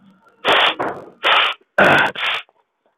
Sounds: Sneeze